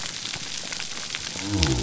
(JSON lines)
{"label": "biophony", "recorder": "SoundTrap 300"}